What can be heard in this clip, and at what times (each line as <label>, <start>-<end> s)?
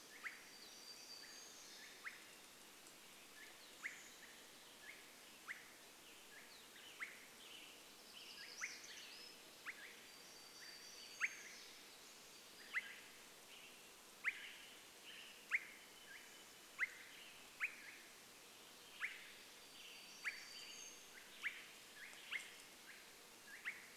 warbler song, 0-2 s
Swainson's Thrush call, 0-24 s
Western Tanager song, 6-22 s
warbler song, 8-12 s
warbler song, 18-22 s